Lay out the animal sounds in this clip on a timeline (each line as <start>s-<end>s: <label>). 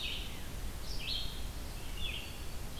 0.0s-2.8s: Red-eyed Vireo (Vireo olivaceus)
1.9s-2.7s: Black-throated Green Warbler (Setophaga virens)